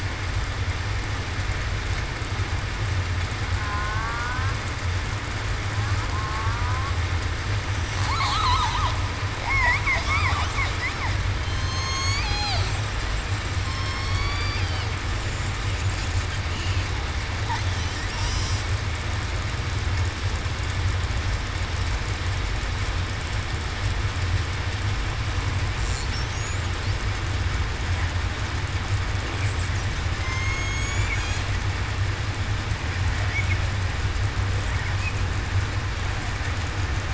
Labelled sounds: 11.4	12.6	killer whale, southern resident, 0.63 to 8.0 kHz
13.6	14.6	killer whale, southern resident, 1.0 to 2.4 kHz
30.2	31.1	killer whale, southern resident, 1.0 to 7.1 kHz

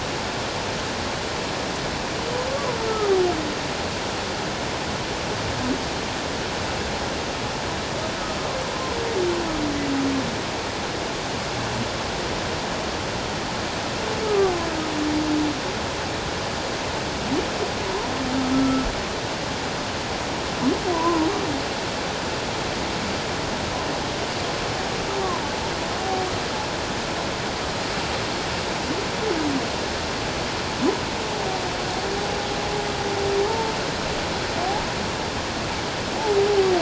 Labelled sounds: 2.9	3.2	humpback whale, 1.1 to 1.4 kHz
14.2	14.5	humpback whale, 1.1 to 1.3 kHz
18.5	18.9	humpback whale, 1.3 to 1.4 kHz
20.9	21.3	humpback whale, 0.91 to 1.1 kHz
33.5	33.7	humpback whale, 0.84 to 0.94 kHz

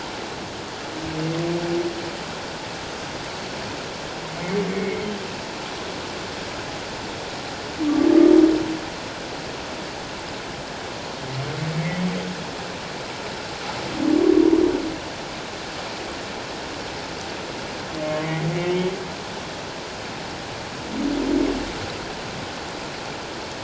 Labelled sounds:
4.7	5.0	humpback whale, 2.1 to 2.3 kHz
18.2	18.9	humpback whale, 1.9 to 2.3 kHz

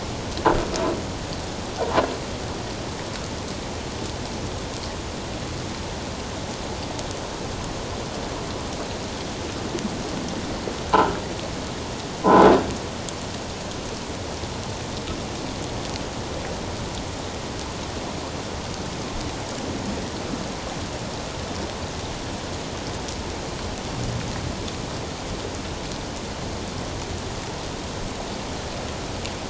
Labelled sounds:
12.2	12.5	croaking sound likely from a nearby submerged object, 0.78 to 1.1 kHz

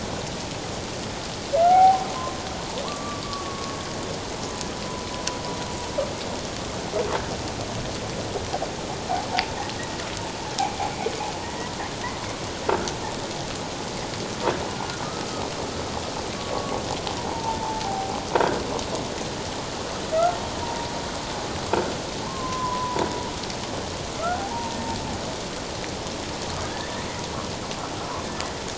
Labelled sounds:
1.6	2.1	humpback whale, 0.78 to 1.5 kHz
2.8	3.8	humpback whale, 1.0 to 1.3 kHz
11.4	11.7	humpback whale, 1.8 to 2.1 kHz
15.0	15.3	humpback whale, 1.2 to 1.3 kHz
16.4	16.8	humpback whale, 1.1 to 1.2 kHz
17.2	18.2	humpback whale, 0.78 to 1.0 kHz
20.6	20.9	humpback whale, 0.88 to 1.0 kHz
22.2	23.1	humpback whale, 0.84 to 1.2 kHz
24.2	24.8	humpback whale, 0.78 to 1.5 kHz
26.6	27.1	humpback whale, 1.5 to 2.0 kHz

